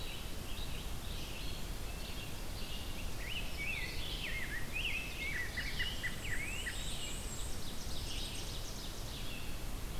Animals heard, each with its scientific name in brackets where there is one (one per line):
American Robin (Turdus migratorius)
Black-and-white Warbler (Mniotilta varia)
Rose-breasted Grosbeak (Pheucticus ludovicianus)
Ovenbird (Seiurus aurocapilla)
unidentified call
Red-eyed Vireo (Vireo olivaceus)